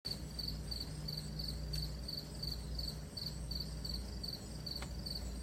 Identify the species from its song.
Gryllus pennsylvanicus